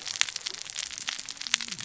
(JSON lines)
{"label": "biophony, cascading saw", "recorder": "SoundTrap 600 or HydroMoth"}